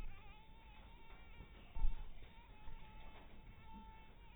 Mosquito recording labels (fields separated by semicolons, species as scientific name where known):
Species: mosquito; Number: one; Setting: cup